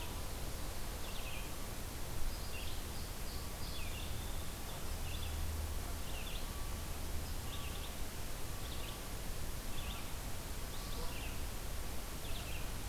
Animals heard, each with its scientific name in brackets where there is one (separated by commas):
Song Sparrow (Melospiza melodia), Red-eyed Vireo (Vireo olivaceus)